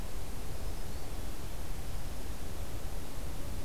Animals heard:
Black-throated Green Warbler (Setophaga virens)

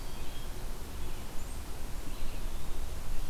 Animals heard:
Eastern Wood-Pewee (Contopus virens)

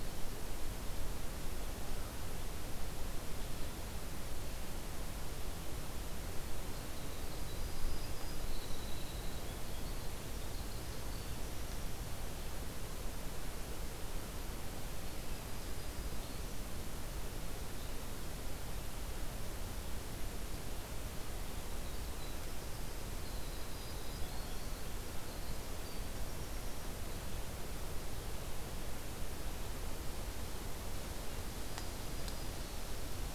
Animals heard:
Winter Wren (Troglodytes hiemalis), Black-throated Green Warbler (Setophaga virens)

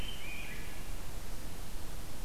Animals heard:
Rose-breasted Grosbeak (Pheucticus ludovicianus)

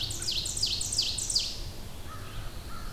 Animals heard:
American Crow (Corvus brachyrhynchos), Ovenbird (Seiurus aurocapilla), Red-eyed Vireo (Vireo olivaceus)

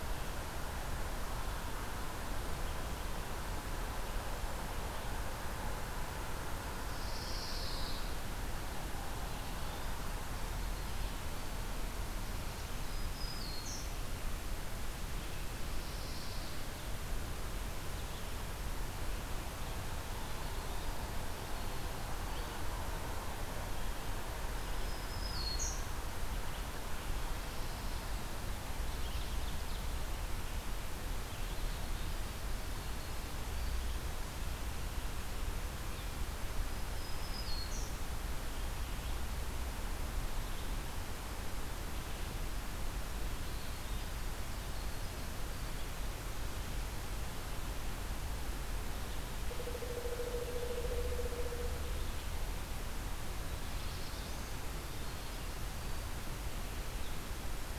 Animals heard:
Pine Warbler (Setophaga pinus), Ovenbird (Seiurus aurocapilla), Winter Wren (Troglodytes hiemalis), Pileated Woodpecker (Dryocopus pileatus), Black-throated Blue Warbler (Setophaga caerulescens), Black-throated Green Warbler (Setophaga virens)

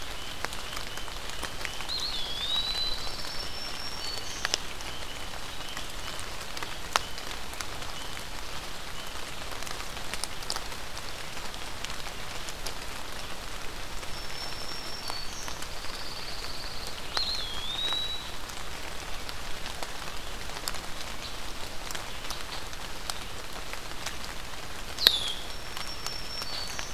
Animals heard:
Black-throated Green Warbler (Setophaga virens), Red-winged Blackbird (Agelaius phoeniceus), Pine Warbler (Setophaga pinus), unidentified call, Eastern Wood-Pewee (Contopus virens)

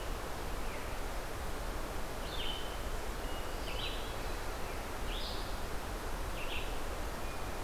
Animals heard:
Hermit Thrush (Catharus guttatus), Red-eyed Vireo (Vireo olivaceus)

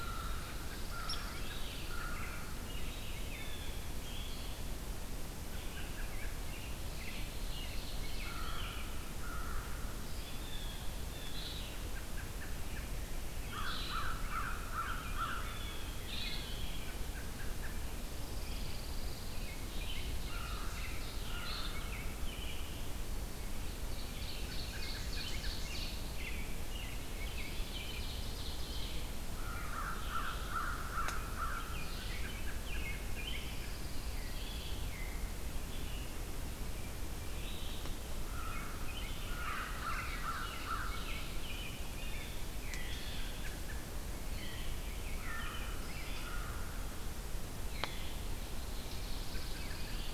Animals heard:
Veery (Catharus fuscescens), Red-eyed Vireo (Vireo olivaceus), American Crow (Corvus brachyrhynchos), Pine Warbler (Setophaga pinus), American Robin (Turdus migratorius), Blue Jay (Cyanocitta cristata), Ovenbird (Seiurus aurocapilla)

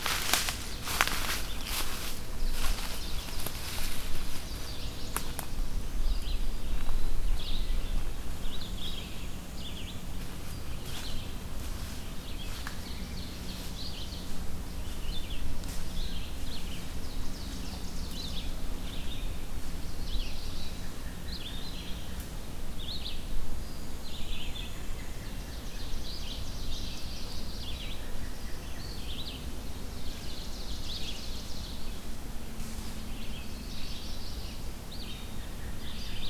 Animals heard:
Black-throated Blue Warbler (Setophaga caerulescens), Black-and-white Warbler (Mniotilta varia), Eastern Wood-Pewee (Contopus virens), Red-eyed Vireo (Vireo olivaceus), Ovenbird (Seiurus aurocapilla), Chestnut-sided Warbler (Setophaga pensylvanica)

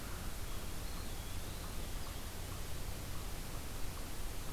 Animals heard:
Eastern Wood-Pewee (Contopus virens)

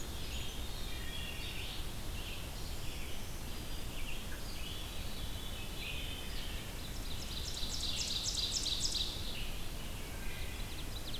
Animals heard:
Black-throated Green Warbler (Setophaga virens), Veery (Catharus fuscescens), Ovenbird (Seiurus aurocapilla), Wood Thrush (Hylocichla mustelina), Red-eyed Vireo (Vireo olivaceus)

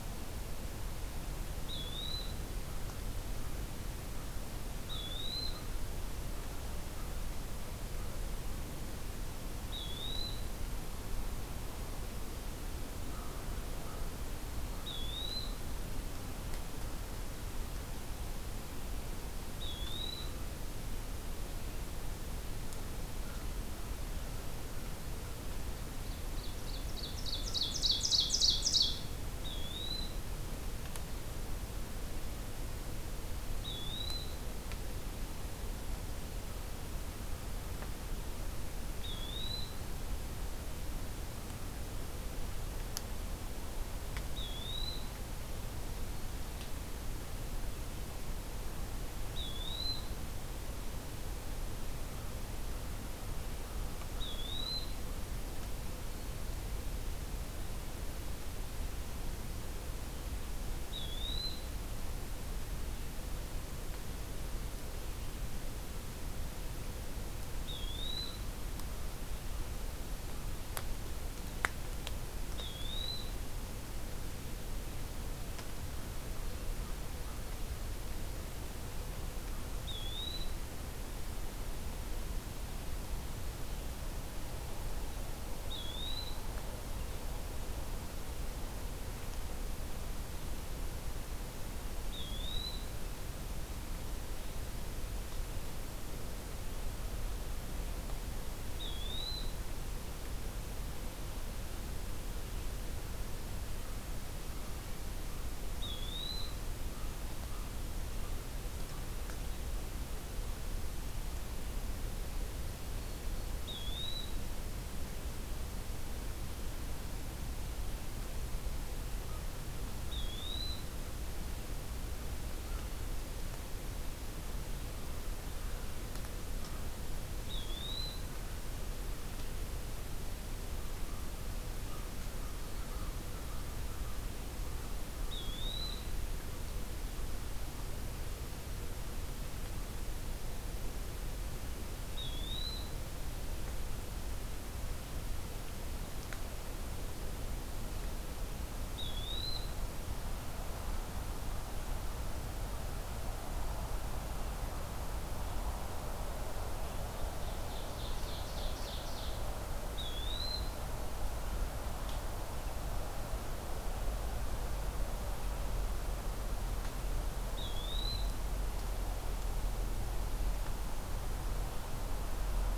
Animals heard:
Ovenbird (Seiurus aurocapilla), American Crow (Corvus brachyrhynchos), Eastern Wood-Pewee (Contopus virens)

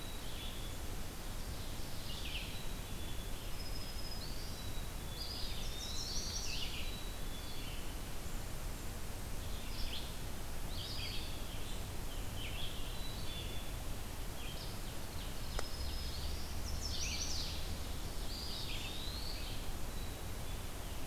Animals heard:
Black-capped Chickadee (Poecile atricapillus), Red-eyed Vireo (Vireo olivaceus), Black-throated Green Warbler (Setophaga virens), Eastern Wood-Pewee (Contopus virens), Ovenbird (Seiurus aurocapilla), Chestnut-sided Warbler (Setophaga pensylvanica)

